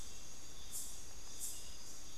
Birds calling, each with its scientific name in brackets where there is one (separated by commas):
Bartlett's Tinamou (Crypturellus bartletti)